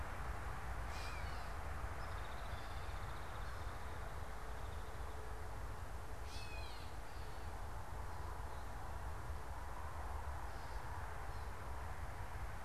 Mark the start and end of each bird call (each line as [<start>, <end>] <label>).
[0.80, 1.50] Gray Catbird (Dumetella carolinensis)
[1.50, 5.00] Hairy Woodpecker (Dryobates villosus)
[6.20, 7.10] Gray Catbird (Dumetella carolinensis)